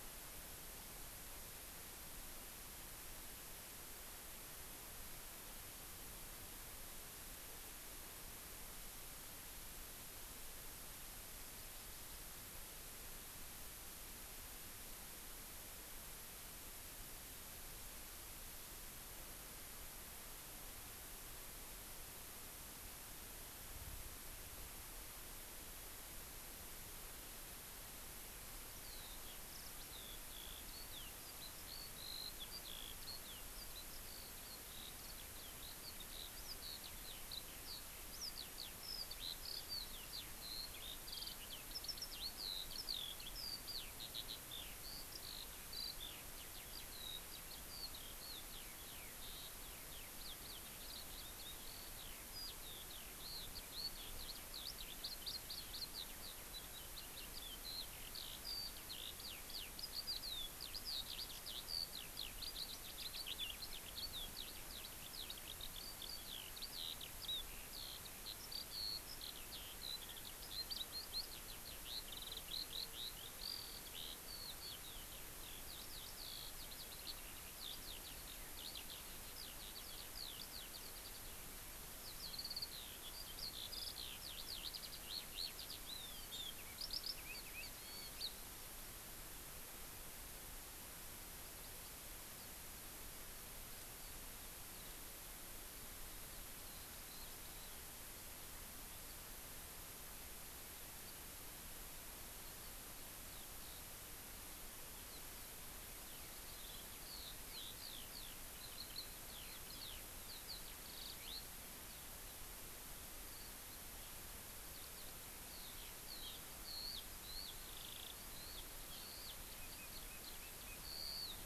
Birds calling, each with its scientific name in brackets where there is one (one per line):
Eurasian Skylark (Alauda arvensis)